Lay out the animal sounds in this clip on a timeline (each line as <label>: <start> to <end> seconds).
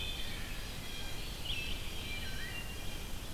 Red-eyed Vireo (Vireo olivaceus): 0.0 to 3.3 seconds
Blue Jay (Cyanocitta cristata): 0.8 to 3.1 seconds
Eastern Wood-Pewee (Contopus virens): 1.3 to 2.6 seconds